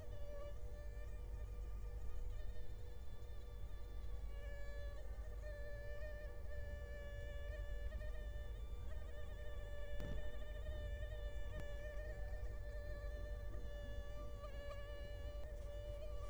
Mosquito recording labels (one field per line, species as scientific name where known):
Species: Culex quinquefasciatus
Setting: cup